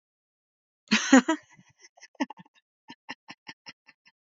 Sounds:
Laughter